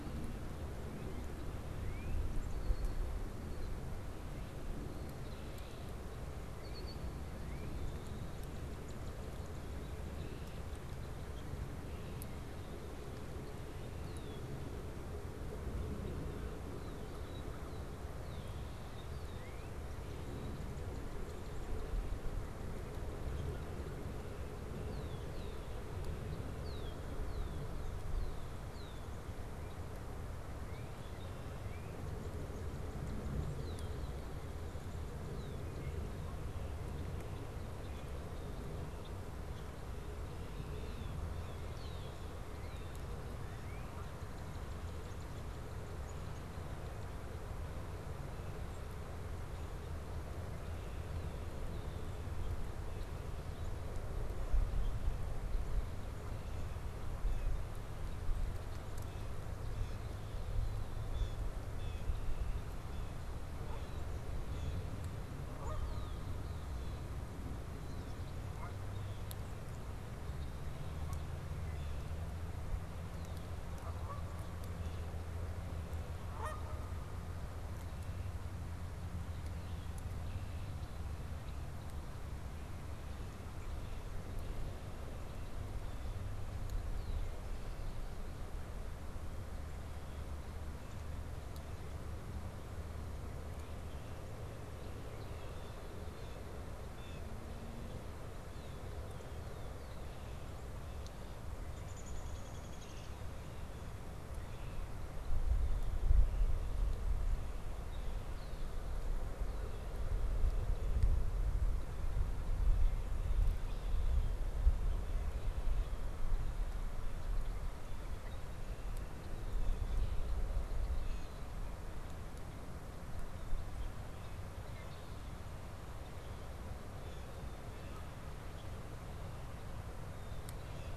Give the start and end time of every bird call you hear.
0.9s-2.5s: Northern Cardinal (Cardinalis cardinalis)
2.5s-7.4s: Red-winged Blackbird (Agelaius phoeniceus)
5.3s-7.9s: Northern Cardinal (Cardinalis cardinalis)
10.1s-10.7s: Red-winged Blackbird (Agelaius phoeniceus)
13.4s-14.6s: Red-winged Blackbird (Agelaius phoeniceus)
15.6s-20.1s: Red-winged Blackbird (Agelaius phoeniceus)
16.3s-17.8s: American Crow (Corvus brachyrhynchos)
19.2s-21.8s: Northern Cardinal (Cardinalis cardinalis)
24.6s-25.8s: Red-winged Blackbird (Agelaius phoeniceus)
26.4s-29.6s: Red-winged Blackbird (Agelaius phoeniceus)
30.5s-33.1s: Northern Cardinal (Cardinalis cardinalis)
33.5s-35.9s: Red-winged Blackbird (Agelaius phoeniceus)
39.8s-43.3s: Red-winged Blackbird (Agelaius phoeniceus)
42.4s-47.2s: Northern Cardinal (Cardinalis cardinalis)
57.2s-57.6s: Blue Jay (Cyanocitta cristata)
59.0s-65.1s: Blue Jay (Cyanocitta cristata)
63.5s-64.2s: Canada Goose (Branta canadensis)
65.4s-66.4s: Canada Goose (Branta canadensis)
68.5s-68.9s: Canada Goose (Branta canadensis)
71.5s-72.2s: Red-winged Blackbird (Agelaius phoeniceus)
73.7s-77.0s: Canada Goose (Branta canadensis)
94.6s-96.1s: Red-winged Blackbird (Agelaius phoeniceus)
95.5s-97.3s: Blue Jay (Cyanocitta cristata)
98.4s-100.5s: Red-winged Blackbird (Agelaius phoeniceus)
101.5s-103.2s: Downy Woodpecker (Dryobates pubescens)
107.8s-108.7s: Red-winged Blackbird (Agelaius phoeniceus)
113.5s-114.4s: Red-winged Blackbird (Agelaius phoeniceus)
121.1s-121.4s: Blue Jay (Cyanocitta cristata)

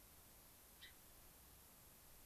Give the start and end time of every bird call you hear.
0.7s-0.9s: Gray-crowned Rosy-Finch (Leucosticte tephrocotis)

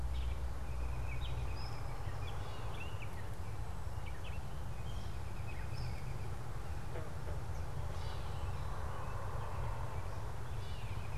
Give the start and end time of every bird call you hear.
0.0s-11.2s: American Robin (Turdus migratorius)
0.0s-11.2s: Gray Catbird (Dumetella carolinensis)

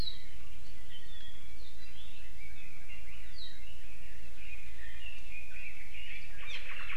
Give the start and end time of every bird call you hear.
2.2s-7.0s: Red-billed Leiothrix (Leiothrix lutea)
6.4s-7.0s: Omao (Myadestes obscurus)

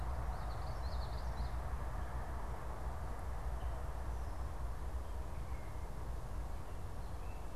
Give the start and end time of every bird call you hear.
0.2s-1.6s: Common Yellowthroat (Geothlypis trichas)

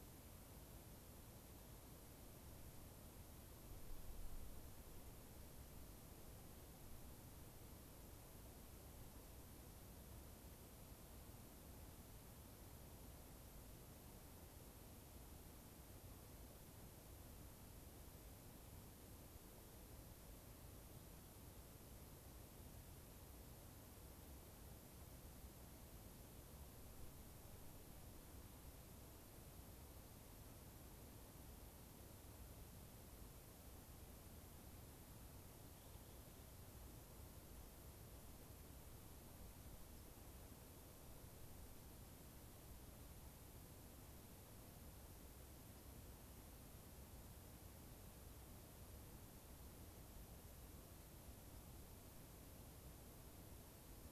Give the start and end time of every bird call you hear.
35.5s-36.9s: Rock Wren (Salpinctes obsoletus)
39.9s-40.0s: unidentified bird
45.7s-45.8s: unidentified bird

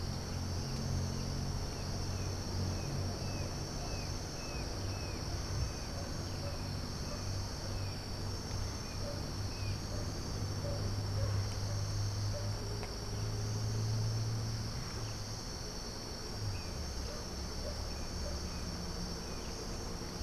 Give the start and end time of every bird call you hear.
3.1s-5.2s: Brown Jay (Psilorhinus morio)

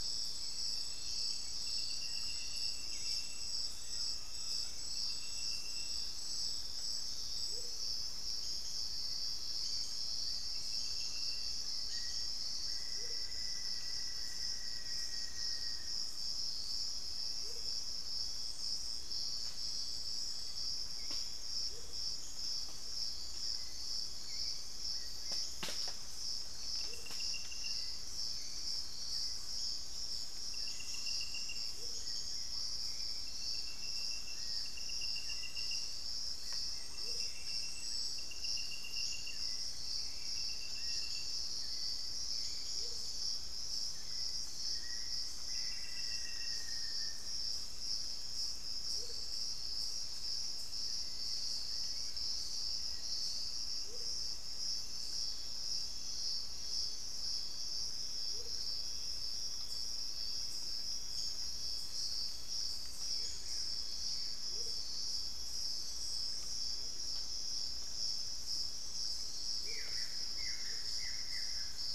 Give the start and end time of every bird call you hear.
0.0s-15.2s: Hauxwell's Thrush (Turdus hauxwelli)
3.7s-6.1s: Western Striolated-Puffbird (Nystalus obamai)
7.3s-8.0s: Amazonian Motmot (Momotus momota)
11.7s-16.2s: Black-faced Antthrush (Formicarius analis)
12.7s-13.4s: Amazonian Motmot (Momotus momota)
17.2s-17.8s: Amazonian Motmot (Momotus momota)
20.6s-53.3s: Hauxwell's Thrush (Turdus hauxwelli)
21.5s-22.2s: Amazonian Motmot (Momotus momota)
26.6s-27.3s: Amazonian Motmot (Momotus momota)
31.6s-32.2s: Amazonian Motmot (Momotus momota)
36.8s-37.4s: Amazonian Motmot (Momotus momota)
42.5s-43.2s: Amazonian Motmot (Momotus momota)
44.6s-47.4s: Black-faced Antthrush (Formicarius analis)
48.7s-49.4s: Amazonian Motmot (Momotus momota)
53.6s-54.3s: Amazonian Motmot (Momotus momota)
58.1s-58.8s: Amazonian Motmot (Momotus momota)
62.8s-64.4s: Buff-throated Woodcreeper (Xiphorhynchus guttatus)
63.1s-71.0s: Amazonian Motmot (Momotus momota)
69.4s-71.9s: Buff-throated Woodcreeper (Xiphorhynchus guttatus)

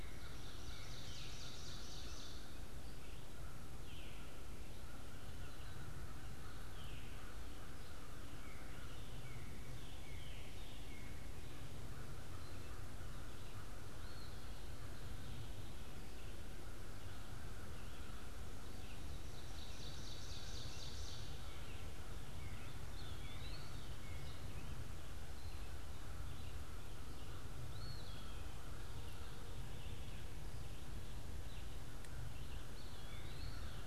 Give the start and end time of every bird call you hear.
0.0s-2.7s: Ovenbird (Seiurus aurocapilla)
0.0s-33.7s: American Crow (Corvus brachyrhynchos)
0.0s-33.7s: Red-eyed Vireo (Vireo olivaceus)
3.5s-11.1s: Veery (Catharus fuscescens)
8.0s-11.5s: Northern Cardinal (Cardinalis cardinalis)
13.8s-14.6s: Eastern Wood-Pewee (Contopus virens)
18.9s-21.8s: Ovenbird (Seiurus aurocapilla)
22.7s-33.8s: Eastern Wood-Pewee (Contopus virens)

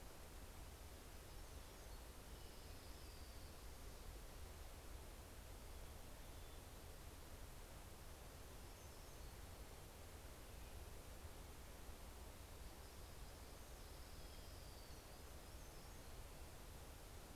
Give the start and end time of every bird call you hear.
0.3s-2.3s: Hermit Warbler (Setophaga occidentalis)
2.1s-5.2s: Orange-crowned Warbler (Leiothlypis celata)
7.2s-10.5s: Hermit Warbler (Setophaga occidentalis)
12.6s-15.6s: Orange-crowned Warbler (Leiothlypis celata)
14.3s-17.3s: Hermit Warbler (Setophaga occidentalis)

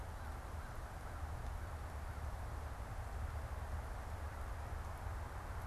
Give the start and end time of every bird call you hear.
0.0s-2.5s: American Crow (Corvus brachyrhynchos)

